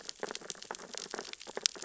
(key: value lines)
label: biophony, sea urchins (Echinidae)
recorder: SoundTrap 600 or HydroMoth